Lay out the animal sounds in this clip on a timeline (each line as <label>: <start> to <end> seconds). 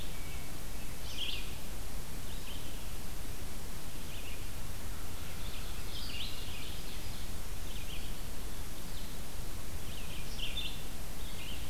Red-eyed Vireo (Vireo olivaceus): 0.0 to 6.3 seconds
Hermit Thrush (Catharus guttatus): 0.1 to 1.0 seconds
Ovenbird (Seiurus aurocapilla): 5.2 to 7.5 seconds
Red-eyed Vireo (Vireo olivaceus): 7.5 to 11.7 seconds